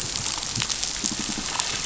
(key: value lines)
label: biophony, pulse
recorder: SoundTrap 500